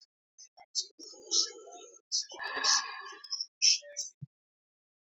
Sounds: Sigh